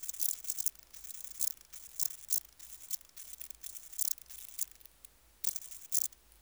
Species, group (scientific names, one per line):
Stauroderus scalaris
Orthoptera